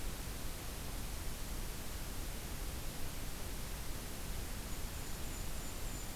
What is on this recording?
Golden-crowned Kinglet